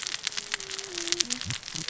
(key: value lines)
label: biophony, cascading saw
recorder: SoundTrap 600 or HydroMoth